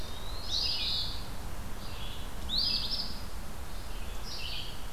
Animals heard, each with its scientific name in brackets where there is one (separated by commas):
Eastern Phoebe (Sayornis phoebe), Red-eyed Vireo (Vireo olivaceus), Eastern Wood-Pewee (Contopus virens)